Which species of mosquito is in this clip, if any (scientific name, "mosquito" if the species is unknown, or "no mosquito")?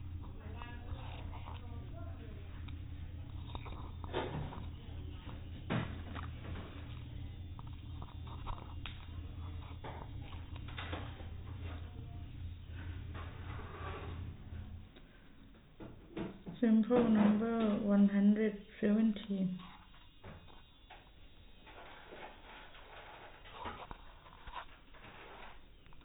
no mosquito